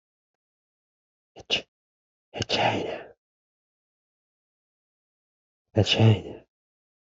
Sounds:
Sneeze